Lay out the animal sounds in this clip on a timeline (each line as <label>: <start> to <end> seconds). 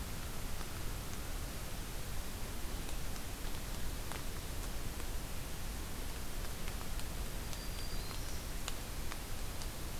Black-throated Green Warbler (Setophaga virens): 7.3 to 8.6 seconds